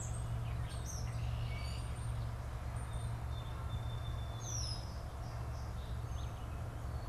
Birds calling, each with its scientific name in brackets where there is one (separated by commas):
Red-winged Blackbird (Agelaius phoeniceus), Song Sparrow (Melospiza melodia), Gray Catbird (Dumetella carolinensis)